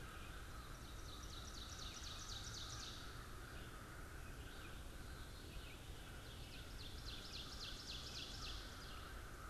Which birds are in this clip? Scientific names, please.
Corvus brachyrhynchos, Vireo olivaceus, Catharus fuscescens, Seiurus aurocapilla